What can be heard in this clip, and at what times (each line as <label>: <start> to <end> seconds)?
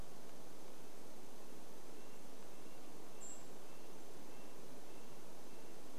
Golden-crowned Kinglet call: 2 to 4 seconds
Red-breasted Nuthatch song: 2 to 6 seconds